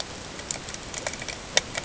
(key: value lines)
label: ambient
recorder: HydroMoth